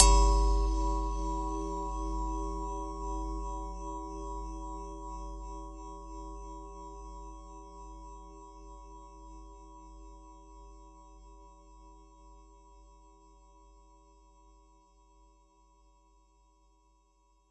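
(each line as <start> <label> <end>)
0.0 A bell rings with a lot of delay and reverb, creating an ambient effect after the initial strike. 17.5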